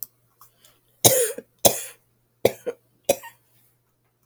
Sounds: Cough